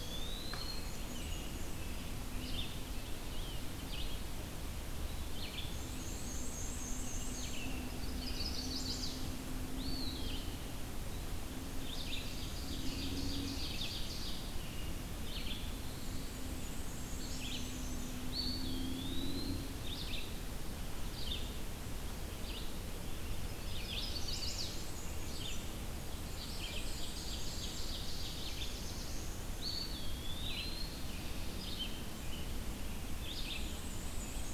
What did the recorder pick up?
Eastern Wood-Pewee, Red-eyed Vireo, Black-and-white Warbler, Chestnut-sided Warbler, Ovenbird, Black-throated Blue Warbler